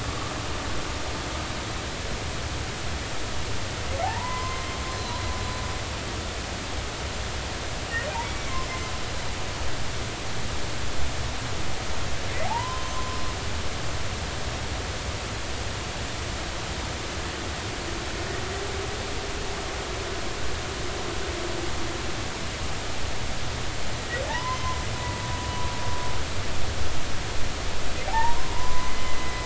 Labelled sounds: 4.0	5.2	humpback whale, 0.80 to 4.2 kHz
8.2	8.5	humpback whale, 2.2 to 2.3 kHz
12.4	13.9	humpback whale, 0.80 to 3.1 kHz
24.0	24.8	humpback whale, 0.80 to 2.1 kHz
28.1	29.4	humpback whale, 0.80 to 2.1 kHz

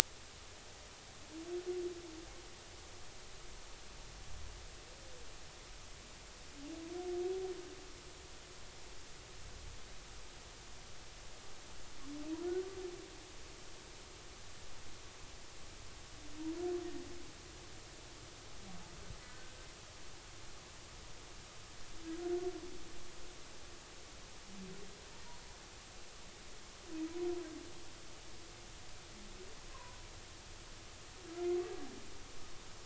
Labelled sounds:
19.3	19.5	humpback whale, 1.4 to 1.6 kHz
29.7	30.0	humpback whale, 0.93 to 1.1 kHz

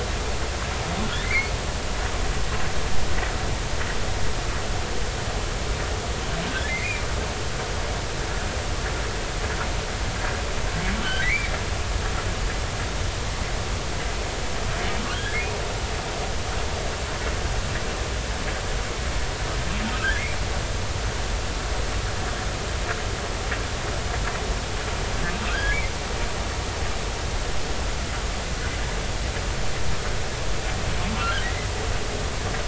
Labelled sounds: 1.2	1.5	humpback whale, 2.0 to 2.5 kHz
6.7	7.0	humpback whale, 1.9 to 2.6 kHz
11.0	11.5	humpback whale, 1.4 to 2.5 kHz
15.1	15.4	humpback whale, 1.4 to 3.5 kHz
25.5	25.8	humpback whale, 1.4 to 1.8 kHz

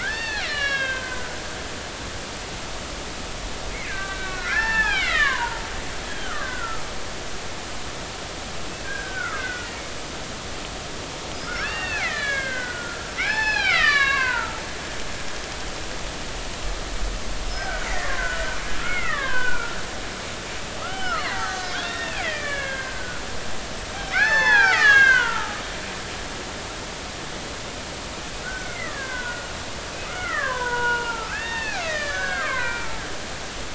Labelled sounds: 0.0	1.4	killer whale, Bigg's (transient), 0.80 to 5.8 kHz
3.9	5.6	killer whale, Bigg's (transient), 0.80 to 5.4 kHz
6.1	6.8	killer whale, Bigg's (transient), 1.1 to 3.4 kHz
8.8	9.7	killer whale, Bigg's (transient), 1.2 to 2.2 kHz
11.5	14.6	killer whale, Bigg's (transient), 0.80 to 5.4 kHz
17.5	19.8	killer whale, Bigg's (transient), 0.90 to 3.2 kHz
20.8	23.2	killer whale, Bigg's (transient), 0.80 to 6.5 kHz
24.1	25.6	killer whale, Bigg's (transient), 0.80 to 7.2 kHz
28.4	29.5	killer whale, Bigg's (transient), 1.4 to 2.3 kHz
30.0	32.9	killer whale, Bigg's (transient), 0.90 to 6.4 kHz

